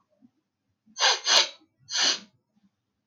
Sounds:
Sniff